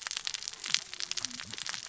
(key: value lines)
label: biophony, cascading saw
recorder: SoundTrap 600 or HydroMoth